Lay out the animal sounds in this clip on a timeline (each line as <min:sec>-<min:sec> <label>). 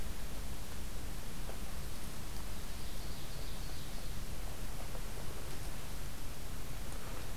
0:01.7-0:04.5 Ovenbird (Seiurus aurocapilla)